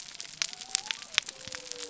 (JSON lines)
{"label": "biophony", "recorder": "SoundTrap 300"}